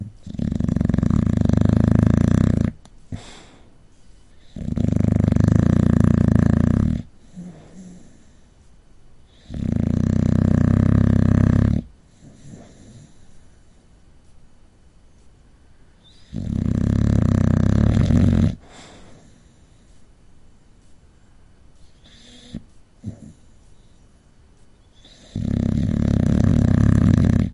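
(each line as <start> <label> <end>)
0.0 Human snoring loudly. 3.7
4.5 Human snoring loudly. 8.2
9.5 Human snoring loudly. 13.1
16.3 Human snoring loudly. 19.4
22.0 Human breathing loudly. 23.5
25.2 Human snoring loudly. 27.5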